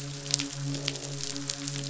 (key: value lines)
label: biophony, croak
recorder: SoundTrap 500

label: biophony, midshipman
recorder: SoundTrap 500